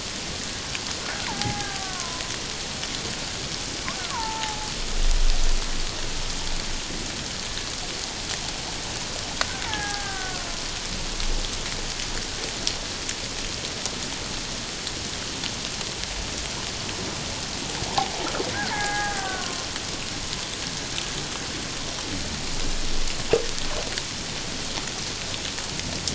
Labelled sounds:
1.3	2.2	killer whale, Bigg's (transient), 0.78 to 1.7 kHz
4.1	4.7	killer whale, Bigg's (transient), 0.78 to 1.5 kHz
9.6	10.5	killer whale, Bigg's (transient), 0.78 to 1.9 kHz
18.7	19.7	killer whale, Bigg's (transient), 0.78 to 2.2 kHz

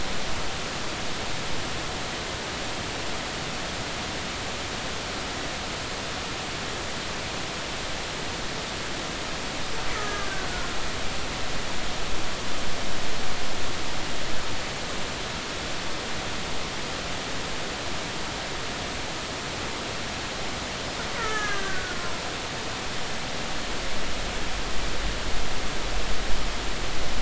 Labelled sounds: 9.9	10.8	killer whale, Bigg's (transient), 1.2 to 1.5 kHz
21.2	22.2	killer whale, Bigg's (transient), 0.90 to 6.6 kHz

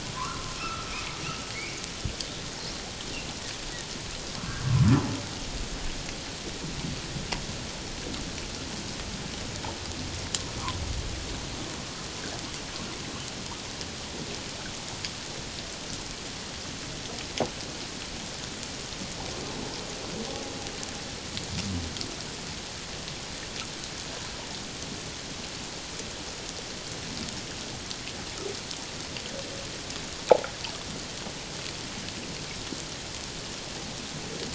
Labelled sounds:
0.1	0.8	humpback whale, 0.94 to 2.7 kHz
1.5	1.8	humpback whale, 1.9 to 2.5 kHz

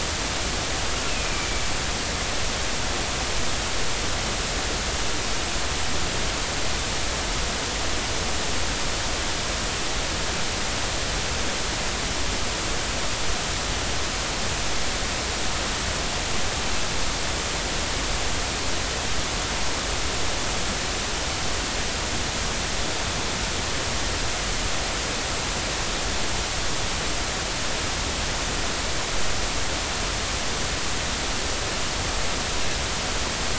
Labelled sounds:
1.1	1.5	killer whale, northern resident, A clan, AA subclan, call N04, 2.3 to 2.7 kHz

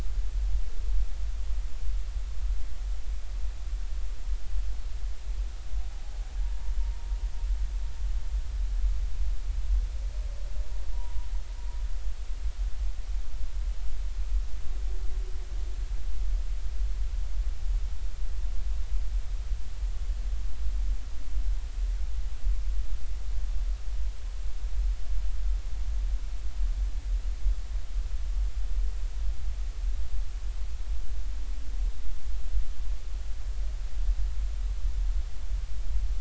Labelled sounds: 6.4	7.1	humpback whale, 0.80 to 1.0 kHz
10.9	11.2	humpback whale, 0.90 to 1.0 kHz

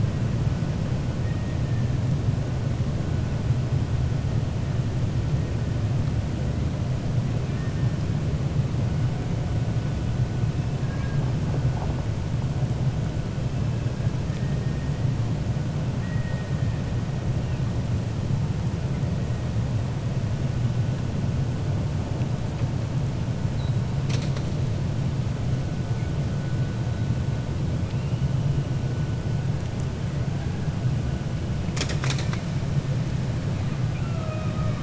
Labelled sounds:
7.4	7.9	killer whale, 1.1 to 2.6 kHz
10.8	11.2	killer whale, 0.87 to 2.4 kHz
16.0	16.5	killer whale, 1.5 to 2.6 kHz
33.9	34.8	killer whale, 0.60 to 2.7 kHz

